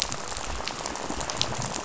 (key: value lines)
label: biophony, rattle
recorder: SoundTrap 500